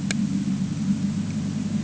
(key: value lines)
label: anthrophony, boat engine
recorder: HydroMoth